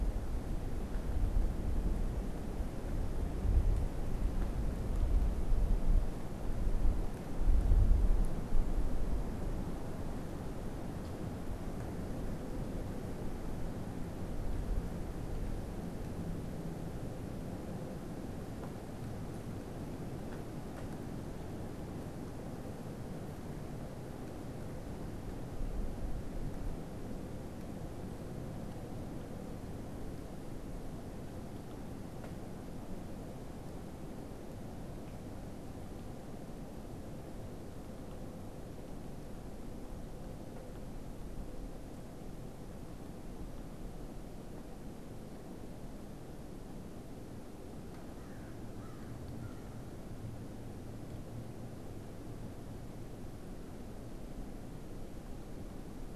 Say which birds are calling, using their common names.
American Crow